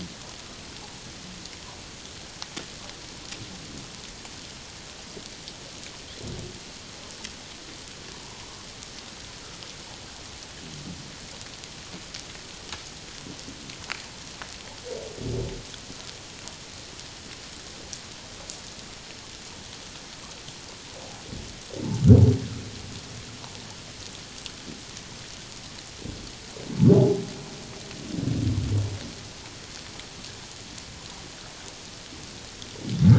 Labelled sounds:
8.2	8.5	humpback whale, 0.84 to 1.1 kHz

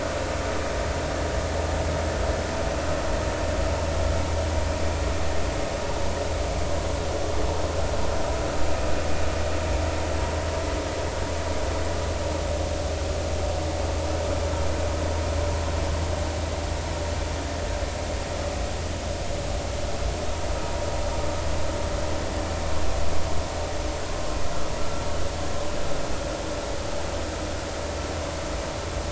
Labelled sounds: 24.8	25.0	vessel noise, 1.3 to 1.4 kHz

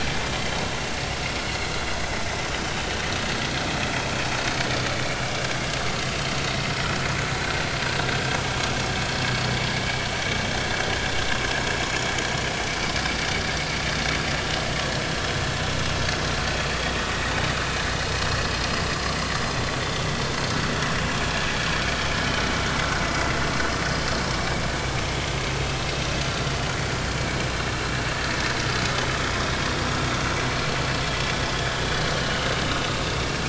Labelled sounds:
9.7	10.0	vessel noise, 2.1 to 2.4 kHz
11.8	12.1	vessel noise, 6.7 to 6.9 kHz
25.6	26.4	vessel noise, 2.5 to 4.8 kHz
32.2	33.4	vessel noise, 2.8 to 5.6 kHz

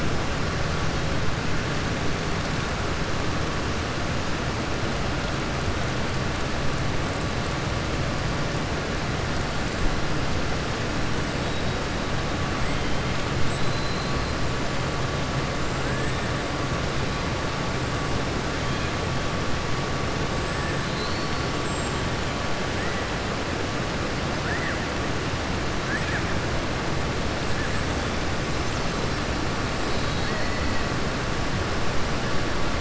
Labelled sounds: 13.5	14.3	killer whale, southern resident, 3.6 to 4.5 kHz
20.8	21.5	killer whale, southern resident, 3.9 to 4.6 kHz
27.6	28.3	killer whale, southern resident, 7.2 to 8.0 kHz

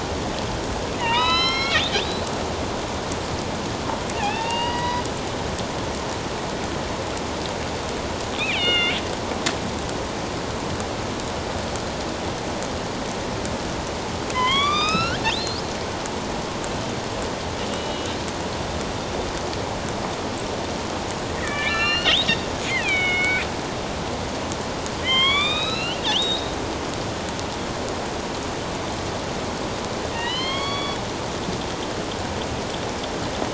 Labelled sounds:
1.0	2.2	killer whale, northern resident, A clan, AB subclan, 0.88 to 5.6 kHz
4.1	5.0	killer whale, northern resident, A clan, AB subclan, 0.78 to 4.9 kHz
8.4	9.0	killer whale, northern resident, A clan, AB subclan, 1.3 to 3.8 kHz
14.3	15.6	killer whale, northern resident, A clan, AB subclan, 0.94 to 6.2 kHz
17.7	18.2	killer whale, northern resident, A clan, AB subclan, 2.8 to 3.9 kHz
21.4	22.3	killer whale, northern resident, A clan, AB subclan, 1.3 to 5.8 kHz
22.7	23.5	killer whale, northern resident, A clan, AB subclan, 1.4 to 4.5 kHz
25.0	26.5	killer whale, northern resident, A clan, AB subclan, 1.0 to 7.3 kHz
30.1	31.0	killer whale, northern resident, A clan, AB subclan, 1.0 to 4.6 kHz

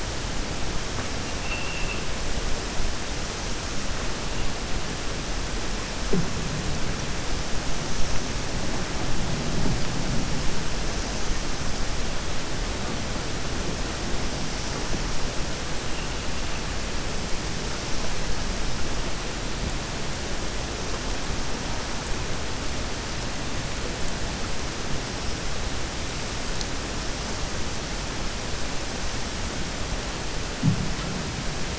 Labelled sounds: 1.3	2.0	vessel noise, 2.1 to 2.9 kHz

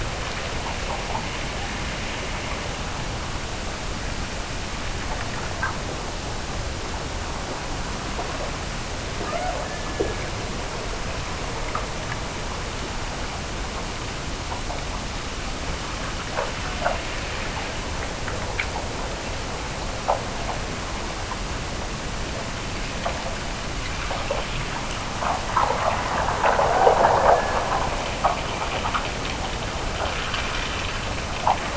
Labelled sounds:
9.2	10.5	killer whale, Bigg's (transient), Gulf of Alaska transient, 0.29 to 2.3 kHz
26.5	27.9	killer whale, Bigg's (transient), Gulf of Alaska transient, 1.3 to 2.0 kHz

